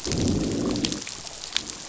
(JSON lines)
{"label": "biophony, growl", "recorder": "SoundTrap 500"}